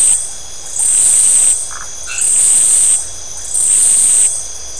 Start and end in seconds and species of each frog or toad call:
0.0	3.2	Iporanga white-lipped frog
1.6	1.9	Phyllomedusa distincta
2.0	2.4	white-edged tree frog
Atlantic Forest, 10:30pm

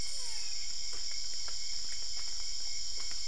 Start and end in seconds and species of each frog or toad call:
0.0	0.8	brown-spotted dwarf frog
Cerrado, ~3am

